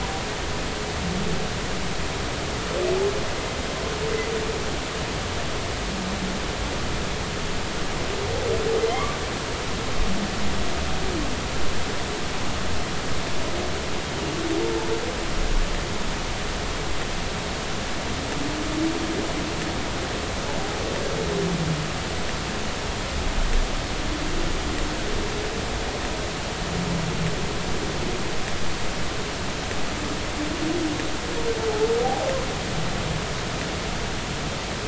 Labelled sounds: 8.9	9.2	humpback whale, 0.96 to 2.4 kHz
32.0	32.3	humpback whale, 0.80 to 0.86 kHz

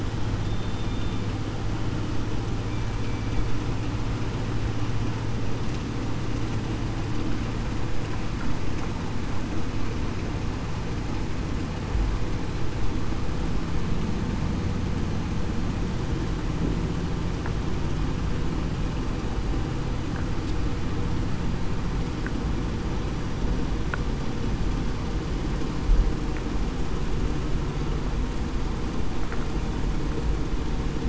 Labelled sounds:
0.4	1.2	killer whale, southern resident, 3.5 to 3.7 kHz

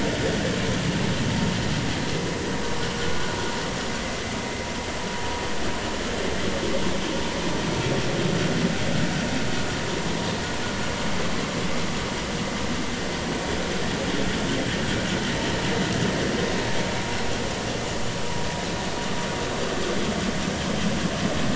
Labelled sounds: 3.0	3.4	vessel noise, 1.4 to 1.6 kHz

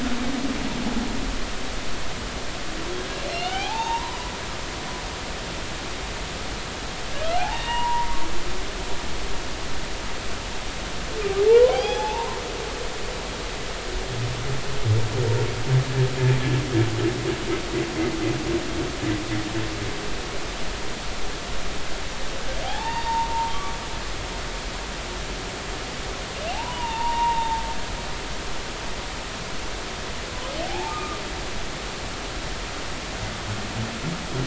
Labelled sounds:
3.3	4.3	humpback whale, 0.80 to 4.4 kHz
4.7	5.0	humpback whale, 3.6 to 3.8 kHz
7.4	8.1	humpback whale, 0.80 to 3.0 kHz
11.4	12.4	humpback whale, 0.80 to 5.1 kHz
22.6	23.5	humpback whale, 0.80 to 4.7 kHz
26.5	27.6	humpback whale, 0.80 to 3.0 kHz
30.7	31.2	humpback whale, 0.80 to 1.3 kHz

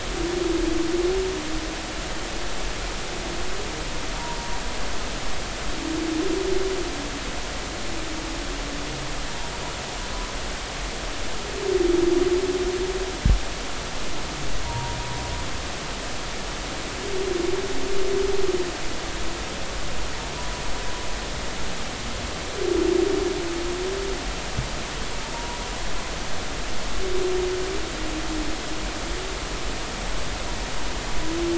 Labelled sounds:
4.2	4.6	humpback whale, 0.90 to 1.0 kHz
14.6	15.0	humpback whale, 0.90 to 0.99 kHz
25.3	25.6	humpback whale, 0.90 to 1.0 kHz

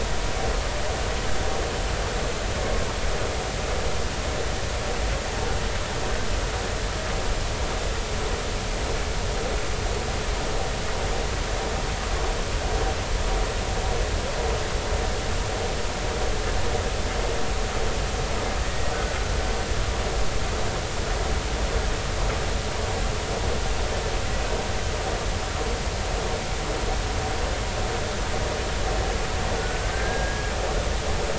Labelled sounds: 18.6	18.9	humpback whale, 1.7 to 2.0 kHz
29.6	30.5	humpback whale, 1.4 to 1.7 kHz

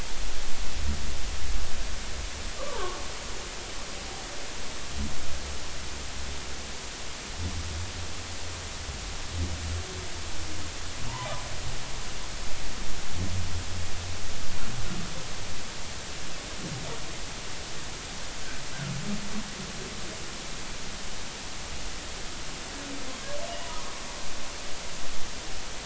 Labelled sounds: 11.1	11.3	humpback whale, 0.80 to 1.1 kHz
23.6	23.8	humpback whale, 0.93 to 1.1 kHz

